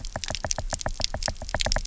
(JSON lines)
{"label": "biophony, knock", "recorder": "SoundTrap 300"}